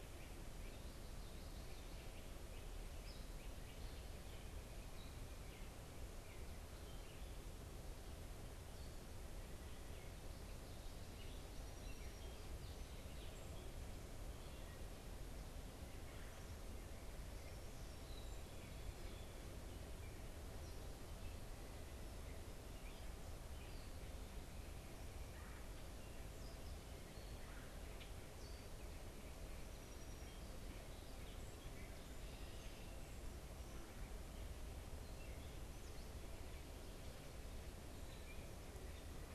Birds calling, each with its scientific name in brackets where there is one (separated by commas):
unidentified bird, Song Sparrow (Melospiza melodia), Great Crested Flycatcher (Myiarchus crinitus), Common Yellowthroat (Geothlypis trichas)